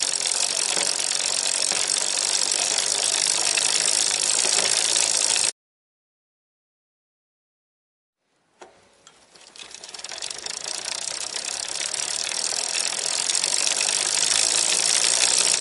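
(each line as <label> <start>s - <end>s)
Bicycle wheels and chain spinning continuously. 0.0s - 5.6s
A bicycle chain spinning as it is being pedaled. 8.4s - 9.4s
Bicycle wheels and chain spinning continuously. 9.4s - 15.6s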